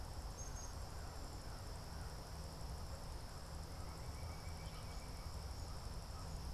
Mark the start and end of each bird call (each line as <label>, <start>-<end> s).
American Crow (Corvus brachyrhynchos), 0.0-6.5 s
Black-capped Chickadee (Poecile atricapillus), 0.1-1.3 s
Pileated Woodpecker (Dryocopus pileatus), 3.6-5.4 s